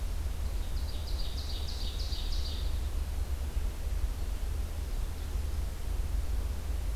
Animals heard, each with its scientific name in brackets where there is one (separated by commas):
Ovenbird (Seiurus aurocapilla)